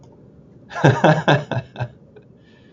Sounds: Laughter